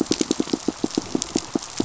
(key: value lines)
label: biophony, pulse
recorder: SoundTrap 500